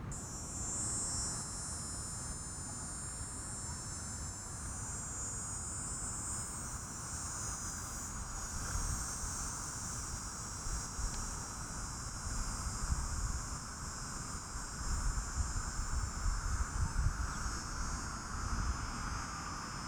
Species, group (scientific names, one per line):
Neotibicen canicularis
Cicadidae